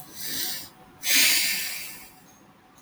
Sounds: Sigh